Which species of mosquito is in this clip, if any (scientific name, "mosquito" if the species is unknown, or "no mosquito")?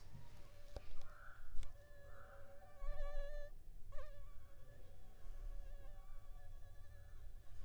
Anopheles arabiensis